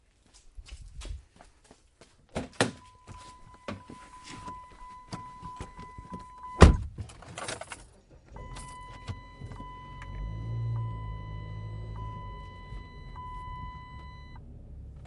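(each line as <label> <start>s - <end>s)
Footsteps on the ground. 0.0s - 2.3s
A car door is opening. 2.4s - 2.7s
Repeated beeping sounds. 2.7s - 6.6s
A car door closes. 6.6s - 6.9s
A key is being inserted into an ignition. 7.3s - 7.8s
Slow beeping sounds repeating. 8.1s - 14.8s
A car engine is starting. 11.8s - 15.1s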